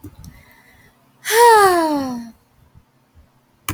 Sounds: Sigh